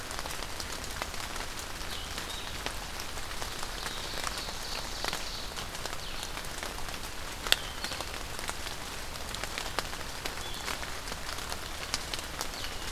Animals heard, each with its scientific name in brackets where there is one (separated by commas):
Ovenbird (Seiurus aurocapilla), Blue-headed Vireo (Vireo solitarius)